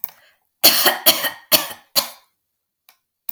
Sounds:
Cough